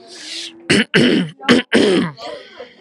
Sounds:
Throat clearing